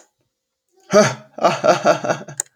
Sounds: Laughter